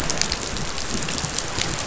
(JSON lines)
{"label": "biophony, chatter", "recorder": "SoundTrap 500"}